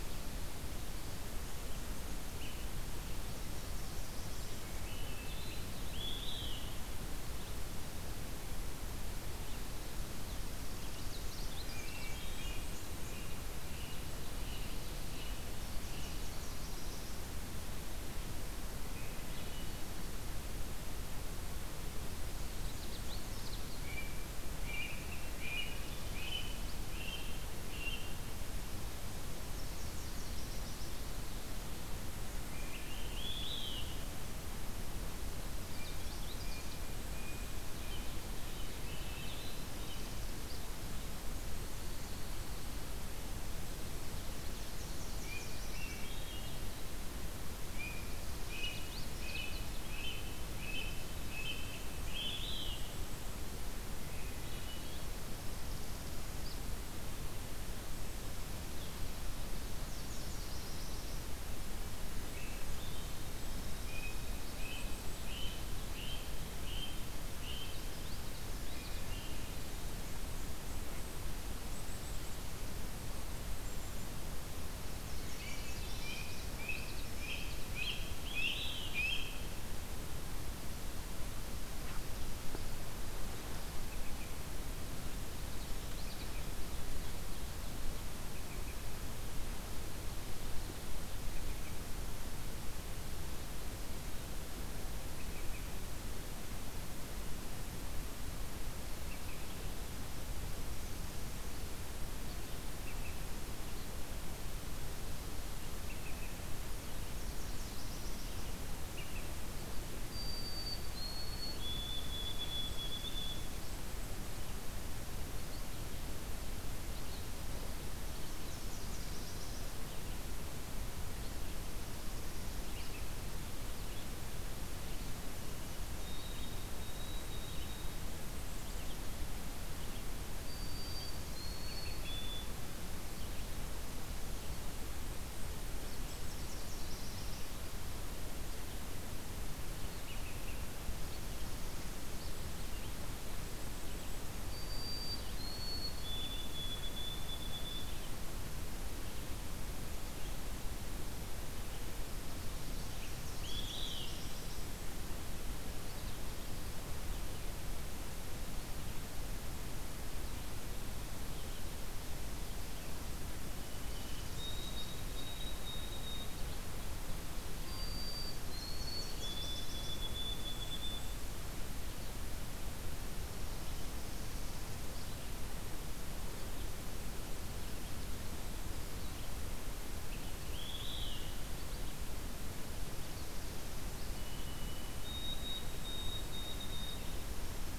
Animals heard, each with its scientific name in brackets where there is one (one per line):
Canada Warbler (Cardellina canadensis)
White-throated Sparrow (Zonotrichia albicollis)
American Robin (Turdus migratorius)
Olive-sided Flycatcher (Contopus cooperi)
Common Yellowthroat (Geothlypis trichas)
Ovenbird (Seiurus aurocapilla)
Nashville Warbler (Leiothlypis ruficapilla)
Blue Jay (Cyanocitta cristata)
Blackburnian Warbler (Setophaga fusca)
Black-capped Chickadee (Poecile atricapillus)
Red-eyed Vireo (Vireo olivaceus)
Northern Parula (Setophaga americana)
Swainson's Thrush (Catharus ustulatus)